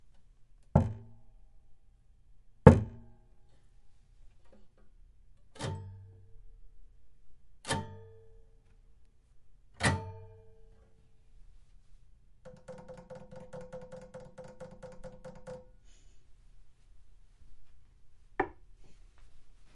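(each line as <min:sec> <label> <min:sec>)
0:00.7 A percussive tap on the muted body of a hollowbody acoustic guitar produces a dry and resonant thump. 0:01.1
0:02.6 A percussive tap on the muted body of a hollowbody acoustic guitar produces a dry and resonant thump. 0:03.0
0:05.5 A short muted acoustic guitar strum creating a dampened percussive tone. 0:06.1
0:07.6 A short muted acoustic guitar strum creating a dampened percussive tone. 0:08.2
0:09.8 A short muted acoustic guitar strum creating a dampened percussive tone. 0:10.4
0:12.4 A sequence of fast, rhythmic finger taps on the body of a hollowbody acoustic guitar creating a light, fluttering percussive pattern. 0:15.7
0:18.4 A short click on the body of an acoustic guitar. 0:18.6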